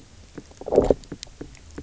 {"label": "biophony, low growl", "recorder": "SoundTrap 300"}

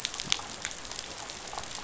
{"label": "biophony, damselfish", "recorder": "SoundTrap 500"}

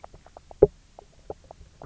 {"label": "biophony, knock croak", "recorder": "SoundTrap 300"}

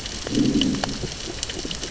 {"label": "biophony, growl", "recorder": "SoundTrap 600 or HydroMoth"}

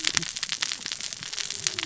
{"label": "biophony, cascading saw", "recorder": "SoundTrap 600 or HydroMoth"}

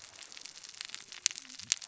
{"label": "biophony, cascading saw", "recorder": "SoundTrap 600 or HydroMoth"}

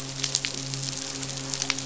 {"label": "biophony, midshipman", "recorder": "SoundTrap 500"}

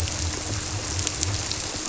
{"label": "biophony", "recorder": "SoundTrap 300"}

